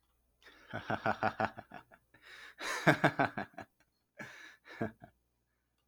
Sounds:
Laughter